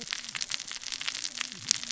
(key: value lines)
label: biophony, cascading saw
recorder: SoundTrap 600 or HydroMoth